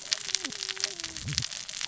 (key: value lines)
label: biophony, cascading saw
recorder: SoundTrap 600 or HydroMoth